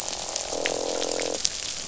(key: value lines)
label: biophony, croak
recorder: SoundTrap 500